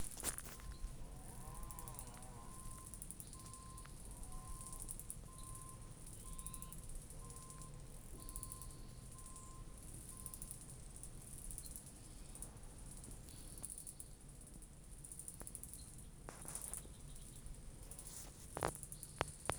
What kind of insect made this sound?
cicada